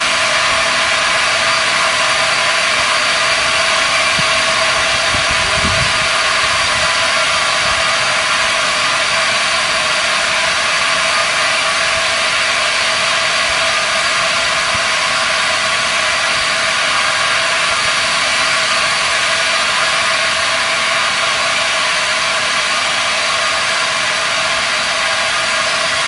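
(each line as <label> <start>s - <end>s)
Machinery buzzes and rattles with a constant metallic sound. 0.0s - 26.1s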